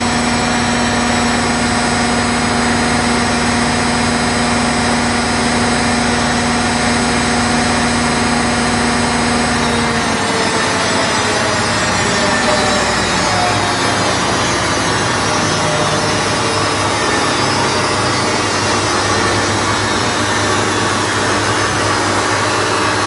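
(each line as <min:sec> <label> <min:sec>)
0:00.0 A washing machine spins loudly and then gradually slows down. 0:23.1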